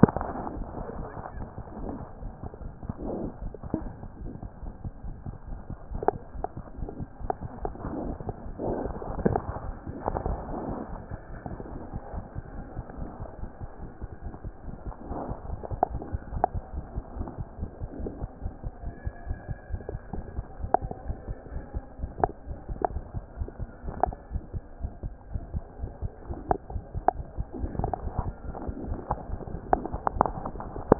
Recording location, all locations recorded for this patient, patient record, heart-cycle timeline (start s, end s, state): aortic valve (AV)
aortic valve (AV)+mitral valve (MV)
#Age: Infant
#Sex: Female
#Height: 62.0 cm
#Weight: 5.96 kg
#Pregnancy status: False
#Murmur: Absent
#Murmur locations: nan
#Most audible location: nan
#Systolic murmur timing: nan
#Systolic murmur shape: nan
#Systolic murmur grading: nan
#Systolic murmur pitch: nan
#Systolic murmur quality: nan
#Diastolic murmur timing: nan
#Diastolic murmur shape: nan
#Diastolic murmur grading: nan
#Diastolic murmur pitch: nan
#Diastolic murmur quality: nan
#Outcome: Abnormal
#Campaign: 2014 screening campaign
0.00	16.32	unannotated
16.32	16.44	S1
16.44	16.54	systole
16.54	16.62	S2
16.62	16.74	diastole
16.74	16.84	S1
16.84	16.94	systole
16.94	17.04	S2
17.04	17.16	diastole
17.16	17.28	S1
17.28	17.38	systole
17.38	17.46	S2
17.46	17.60	diastole
17.60	17.70	S1
17.70	17.80	systole
17.80	17.88	S2
17.88	18.00	diastole
18.00	18.12	S1
18.12	18.20	systole
18.20	18.28	S2
18.28	18.42	diastole
18.42	18.52	S1
18.52	18.64	systole
18.64	18.72	S2
18.72	18.84	diastole
18.84	18.94	S1
18.94	19.04	systole
19.04	19.12	S2
19.12	19.28	diastole
19.28	19.38	S1
19.38	19.48	systole
19.48	19.56	S2
19.56	19.70	diastole
19.70	19.82	S1
19.82	19.92	systole
19.92	20.00	S2
20.00	20.14	diastole
20.14	20.24	S1
20.24	20.36	systole
20.36	20.44	S2
20.44	20.60	diastole
20.60	20.70	S1
20.70	20.82	systole
20.82	20.92	S2
20.92	21.06	diastole
21.06	21.18	S1
21.18	21.28	systole
21.28	21.36	S2
21.36	21.52	diastole
21.52	21.64	S1
21.64	21.74	systole
21.74	21.82	S2
21.82	22.00	diastole
22.00	22.12	S1
22.12	22.20	systole
22.20	22.32	S2
22.32	22.48	diastole
22.48	22.58	S1
22.58	22.68	systole
22.68	22.78	S2
22.78	22.92	diastole
22.92	23.04	S1
23.04	23.14	systole
23.14	23.24	S2
23.24	23.38	diastole
23.38	23.48	S1
23.48	23.60	systole
23.60	23.68	S2
23.68	23.86	diastole
23.86	23.96	S1
23.96	24.06	systole
24.06	30.99	unannotated